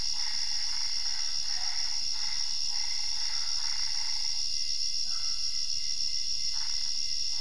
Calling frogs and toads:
Boana albopunctata (Hylidae)
Cerrado, Brazil, 11:30pm

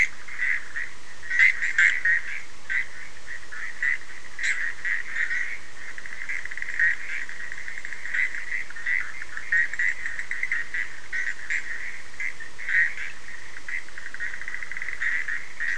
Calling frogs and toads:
Boana bischoffi (Hylidae)
Atlantic Forest, Brazil, 1:30am

